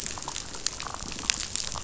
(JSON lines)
{"label": "biophony, damselfish", "recorder": "SoundTrap 500"}